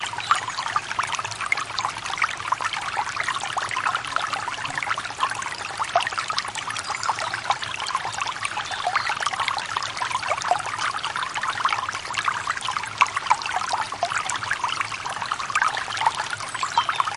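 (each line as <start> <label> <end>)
0.0 A very gentle flow of water nearby outdoors. 17.2
0.3 A bird chirps in the distance. 1.3
0.3 A gentle flow of water nearby. 1.3
6.6 A gentle flow of water nearby. 10.4
6.6 Birds chirping in the distance. 10.4
16.4 A gentle flow of water nearby. 17.2
16.4 Birds chirp in a high pitch from afar. 17.2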